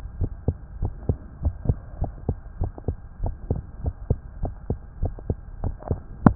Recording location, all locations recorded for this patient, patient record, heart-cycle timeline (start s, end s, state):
tricuspid valve (TV)
aortic valve (AV)+pulmonary valve (PV)+tricuspid valve (TV)+mitral valve (MV)
#Age: Child
#Sex: Male
#Height: 133.0 cm
#Weight: 26.4 kg
#Pregnancy status: False
#Murmur: Absent
#Murmur locations: nan
#Most audible location: nan
#Systolic murmur timing: nan
#Systolic murmur shape: nan
#Systolic murmur grading: nan
#Systolic murmur pitch: nan
#Systolic murmur quality: nan
#Diastolic murmur timing: nan
#Diastolic murmur shape: nan
#Diastolic murmur grading: nan
#Diastolic murmur pitch: nan
#Diastolic murmur quality: nan
#Outcome: Abnormal
#Campaign: 2015 screening campaign
0.00	0.16	unannotated
0.16	0.30	S1
0.30	0.44	systole
0.44	0.58	S2
0.58	0.80	diastole
0.80	0.94	S1
0.94	1.06	systole
1.06	1.20	S2
1.20	1.42	diastole
1.42	1.54	S1
1.54	1.68	systole
1.68	1.80	S2
1.80	2.00	diastole
2.00	2.12	S1
2.12	2.28	systole
2.28	2.38	S2
2.38	2.58	diastole
2.58	2.72	S1
2.72	2.88	systole
2.88	2.98	S2
2.98	3.22	diastole
3.22	3.36	S1
3.36	3.48	systole
3.48	3.62	S2
3.62	3.82	diastole
3.82	3.94	S1
3.94	4.06	systole
4.06	4.18	S2
4.18	4.40	diastole
4.40	4.54	S1
4.54	4.68	systole
4.68	4.80	S2
4.80	5.00	diastole
5.00	5.14	S1
5.14	5.28	systole
5.28	5.38	S2
5.38	5.62	diastole
5.62	5.76	S1
5.76	5.90	systole
5.90	6.00	S2
6.00	6.35	unannotated